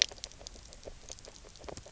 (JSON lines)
{"label": "biophony, grazing", "recorder": "SoundTrap 300"}